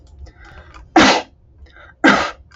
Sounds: Sneeze